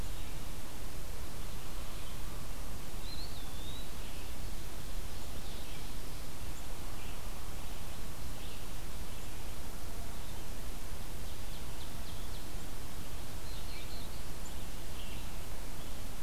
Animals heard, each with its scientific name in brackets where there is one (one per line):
Eastern Wood-Pewee (Contopus virens)
Ovenbird (Seiurus aurocapilla)
Red-eyed Vireo (Vireo olivaceus)
Black-throated Blue Warbler (Setophaga caerulescens)